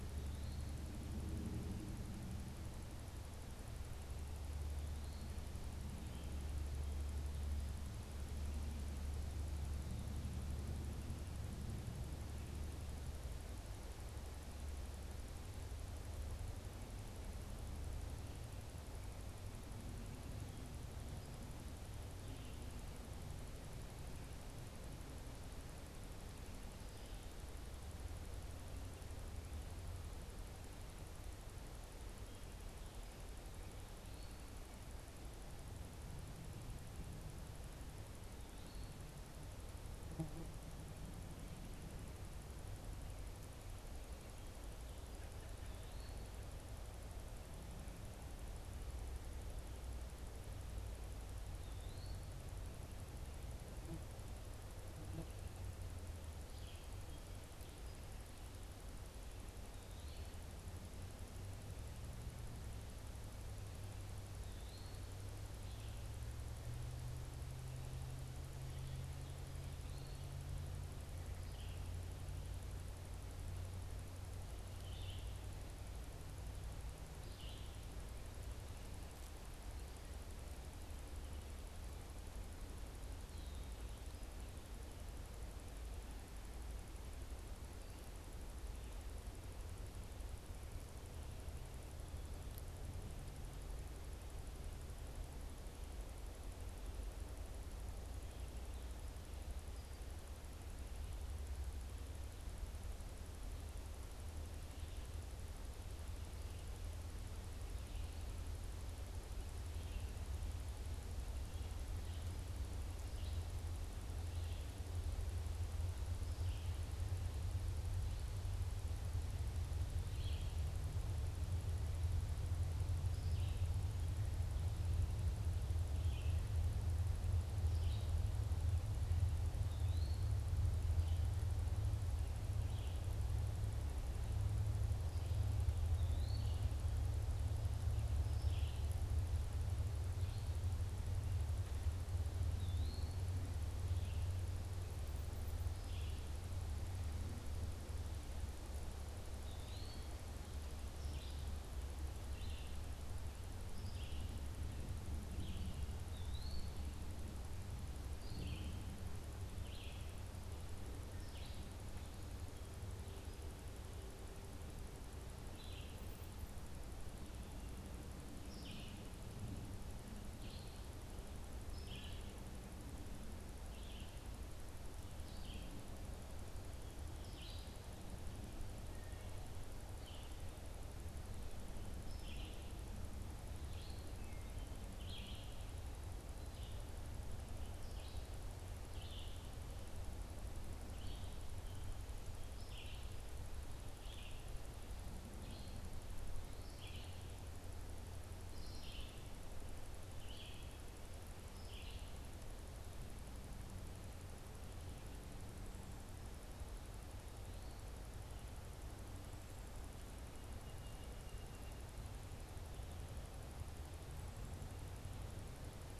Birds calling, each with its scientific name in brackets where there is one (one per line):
Eastern Wood-Pewee (Contopus virens)
Red-eyed Vireo (Vireo olivaceus)
Song Sparrow (Melospiza melodia)